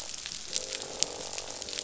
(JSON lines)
{"label": "biophony, croak", "recorder": "SoundTrap 500"}